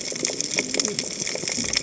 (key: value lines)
label: biophony, cascading saw
recorder: HydroMoth